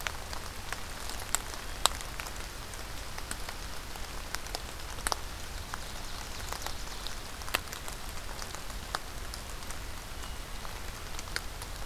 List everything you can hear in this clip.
Ovenbird